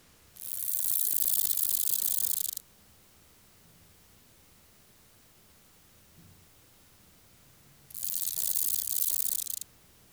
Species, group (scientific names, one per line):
Conocephalus fuscus
Orthoptera